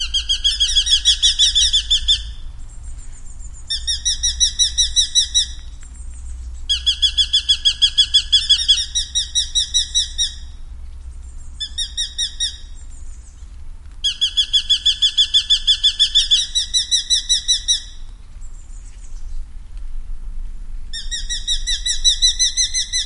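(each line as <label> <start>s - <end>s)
A bird chirps loudly in a steady pattern. 0.0s - 2.4s
A bird chirps loudly in a steady, high-pitched pattern. 0.4s - 1.8s
A bird chirps steadily in the distance. 2.4s - 3.7s
A bird chirps loudly in a steady, high-pitched pattern. 3.7s - 5.6s
A bird chirps steadily in the distance. 5.6s - 6.7s
A bird chirps loudly in a steady pattern. 6.7s - 8.8s
A bird chirps loudly in a steady, high-pitched pattern. 8.4s - 10.3s
A bird chirps steadily in the distance. 10.3s - 11.6s
A bird chirps loudly in a steady, high-pitched pattern. 11.6s - 12.6s
A bird chirps steadily in the distance. 12.6s - 13.7s
A bird chirps loudly in a steady pattern. 14.0s - 16.4s
A bird chirps loudly in a steady, high-pitched pattern. 16.1s - 17.9s
A bird chirps steadily in the distance. 17.9s - 19.5s
A bird chirps loudly in a steady, high-pitched pattern. 20.8s - 23.1s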